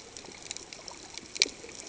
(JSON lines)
{"label": "ambient", "recorder": "HydroMoth"}